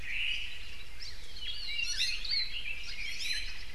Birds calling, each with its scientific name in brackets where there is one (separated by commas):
Iiwi (Drepanis coccinea), Hawaii Akepa (Loxops coccineus), Red-billed Leiothrix (Leiothrix lutea), Omao (Myadestes obscurus), Hawaii Creeper (Loxops mana)